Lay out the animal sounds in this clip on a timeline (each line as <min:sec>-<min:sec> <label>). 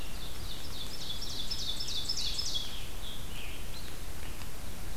0:00.0-0:03.0 Ovenbird (Seiurus aurocapilla)
0:02.4-0:04.5 Scarlet Tanager (Piranga olivacea)